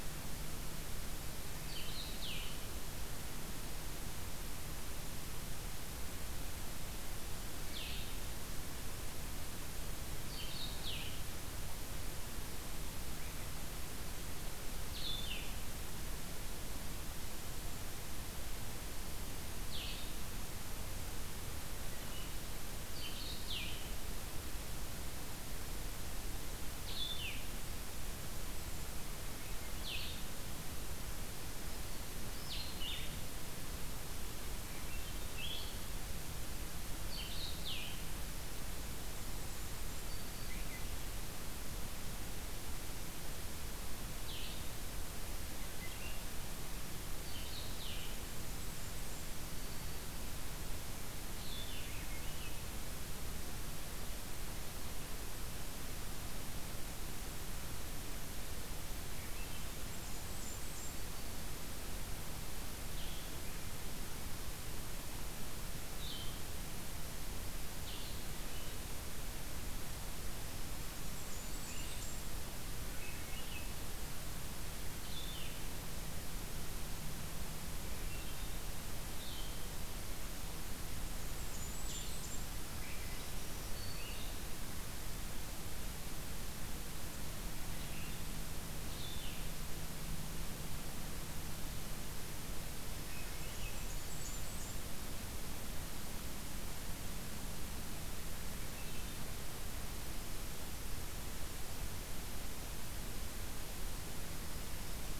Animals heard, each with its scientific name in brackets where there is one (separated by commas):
Blackburnian Warbler (Setophaga fusca), Black-throated Green Warbler (Setophaga virens), Blue-headed Vireo (Vireo solitarius), Swainson's Thrush (Catharus ustulatus)